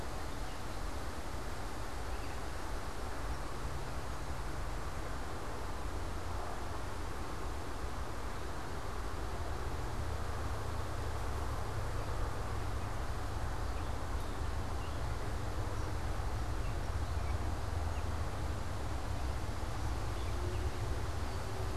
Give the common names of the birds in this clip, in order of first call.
Gray Catbird